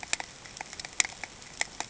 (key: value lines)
label: ambient
recorder: HydroMoth